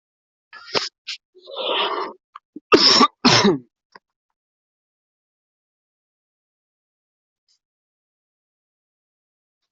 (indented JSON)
{
  "expert_labels": [
    {
      "quality": "good",
      "cough_type": "dry",
      "dyspnea": false,
      "wheezing": false,
      "stridor": false,
      "choking": false,
      "congestion": false,
      "nothing": true,
      "diagnosis": "lower respiratory tract infection",
      "severity": "mild"
    }
  ],
  "age": 28,
  "gender": "male",
  "respiratory_condition": true,
  "fever_muscle_pain": true,
  "status": "symptomatic"
}